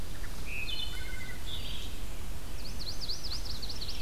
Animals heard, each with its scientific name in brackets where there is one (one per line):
Wood Thrush (Hylocichla mustelina)
Black-and-white Warbler (Mniotilta varia)
Chestnut-sided Warbler (Setophaga pensylvanica)
Red-eyed Vireo (Vireo olivaceus)